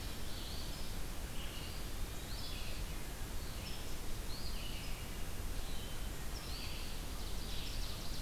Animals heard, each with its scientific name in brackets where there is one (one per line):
Red-eyed Vireo (Vireo olivaceus)
Ovenbird (Seiurus aurocapilla)
Eastern Phoebe (Sayornis phoebe)